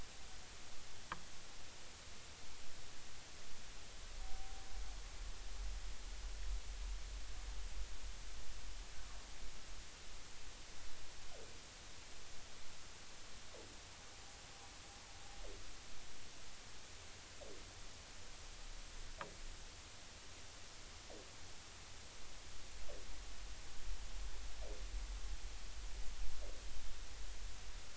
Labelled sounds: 4.2	4.7	humpback whale, 0.80 to 0.83 kHz

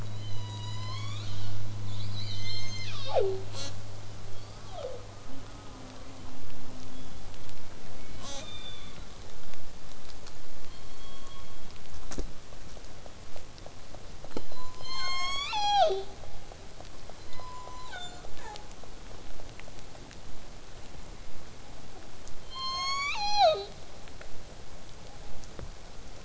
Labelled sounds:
0.0	1.6	killer whale, southern resident, call S01, 0.49 to 8.0 kHz
1.8	2.7	killer whale, southern resident, 1.8 to 5.6 kHz
2.2	3.5	killer whale, southern resident, call S01, 0.13 to 8.0 kHz
3.5	3.7	killer whale, southern resident, J pod, call S05, 0.18 to 8.0 kHz
8.2	8.4	killer whale, southern resident, J pod, call S05, 0.22 to 8.0 kHz
8.3	9.1	killer whale, southern resident, call S16, 0.80 to 5.0 kHz
10.6	11.8	killer whale, southern resident, call S17, 0.84 to 4.5 kHz
14.3	16.2	killer whale, southern resident, call S01, 0.18 to 8.0 kHz
17.2	18.6	killer whale, southern resident, J pod, call S07, 0.31 to 8.0 kHz
22.5	23.8	killer whale, southern resident, call S01, 0.22 to 8.0 kHz

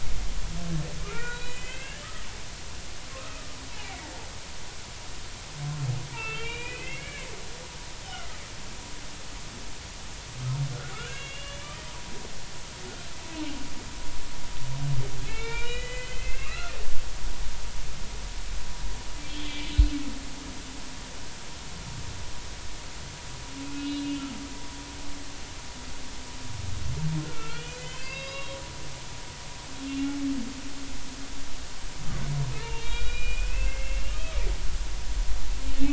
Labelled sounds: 1.0	2.0	humpback whale, 1.1 to 4.0 kHz
3.2	3.4	humpback whale, 2.4 to 2.6 kHz
6.1	7.3	humpback whale, 1.3 to 3.1 kHz
8.0	8.4	humpback whale, 1.2 to 3.2 kHz
10.9	11.8	humpback whale, 1.2 to 3.5 kHz
15.2	16.8	humpback whale, 1.0 to 6.8 kHz
19.3	20.0	humpback whale, 2.2 to 4.2 kHz
23.8	24.2	humpback whale, 2.8 to 2.9 kHz
27.2	28.6	humpback whale, 1.0 to 5.0 kHz
29.9	30.1	humpback whale, 2.7 to 2.8 kHz
32.6	34.2	humpback whale, 1.4 to 4.9 kHz

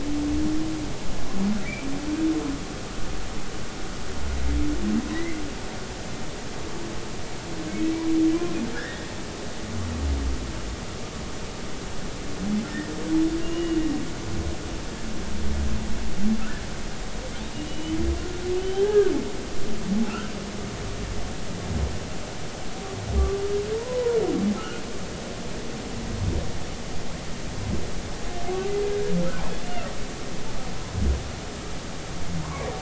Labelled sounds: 5.1	5.4	humpback whale, 1.8 to 2.2 kHz
8.7	9.1	humpback whale, 1.4 to 3.8 kHz
13.4	13.8	humpback whale, 2.8 to 2.9 kHz
17.7	18.0	humpback whale, 2.9 to 3.1 kHz
18.6	19.1	humpback whale, 0.80 to 3.2 kHz
20.1	20.3	humpback whale, 1.2 to 1.6 kHz
23.2	24.2	humpback whale, 0.90 to 1.2 kHz
24.6	24.8	humpback whale, 1.2 to 1.5 kHz
32.4	32.7	humpback whale, 0.90 to 1.2 kHz

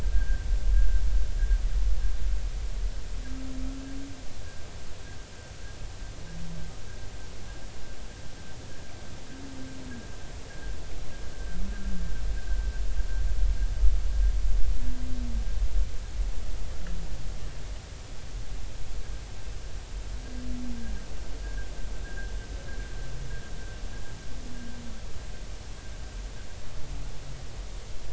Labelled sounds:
0.1	0.4	humpback whale, 1.5 to 1.7 kHz
21.4	22.3	humpback whale, 1.4 to 1.7 kHz

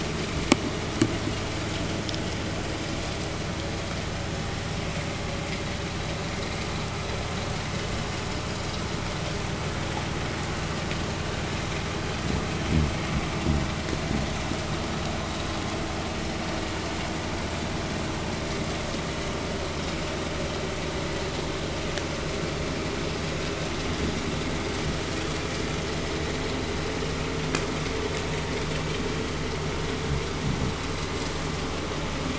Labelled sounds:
1.3	10.1	vessel noise, 0 to 8.0 kHz
11.9	14.7	fish, 0 to 0.64 kHz

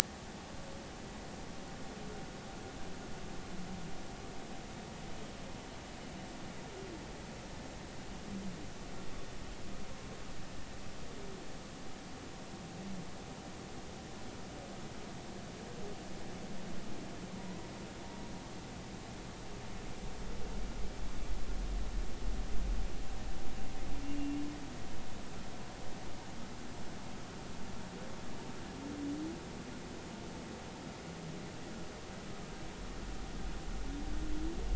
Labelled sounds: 17.4	17.7	humpback whale, 0.93 to 1.1 kHz

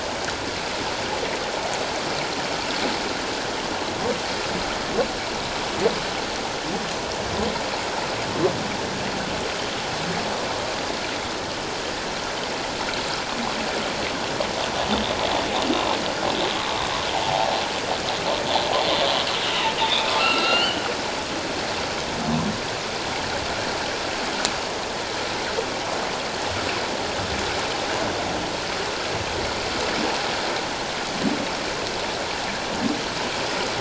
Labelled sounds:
17.2	17.5	humpback whale, 0.78 to 0.94 kHz
19.8	20.8	humpback whale, 1.3 to 4.6 kHz

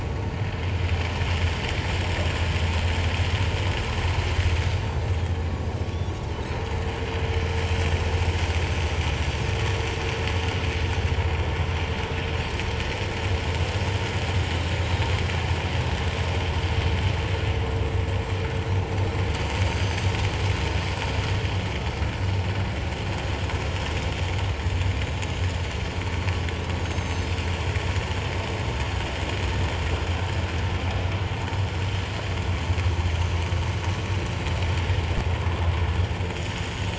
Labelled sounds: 19.7	20.1	Pacific white-sided dolphin, 6.1 to 6.3 kHz
25.0	26.3	Pacific white-sided dolphin, 3.8 to 5.9 kHz
26.8	27.4	Pacific white-sided dolphin, 3.5 to 7.6 kHz
36.3	36.7	Pacific white-sided dolphin, 6.7 to 7.0 kHz

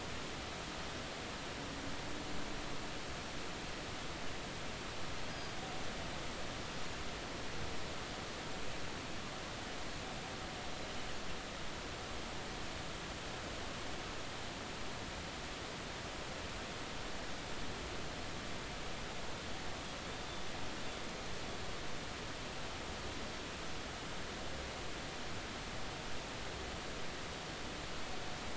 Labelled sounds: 5.3	5.6	Pacific white-sided dolphin, 4.7 to 5.1 kHz

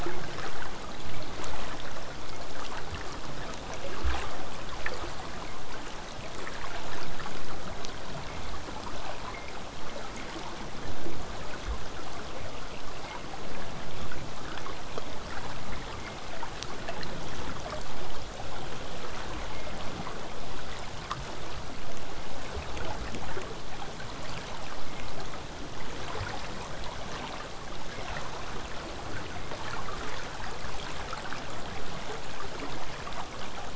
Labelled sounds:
28.8	33.7	vessel noise, 0 to 8.0 kHz

